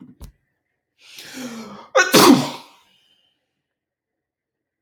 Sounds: Sneeze